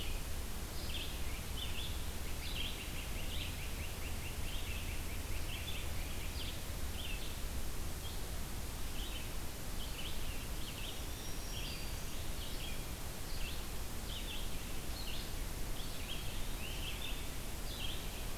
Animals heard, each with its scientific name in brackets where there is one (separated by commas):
Red-eyed Vireo (Vireo olivaceus), Great Crested Flycatcher (Myiarchus crinitus), Black-throated Green Warbler (Setophaga virens)